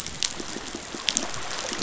{"label": "biophony", "recorder": "SoundTrap 500"}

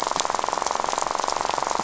{"label": "biophony, rattle", "recorder": "SoundTrap 500"}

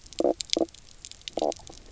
{"label": "biophony, knock croak", "recorder": "SoundTrap 300"}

